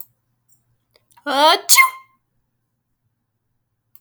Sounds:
Sneeze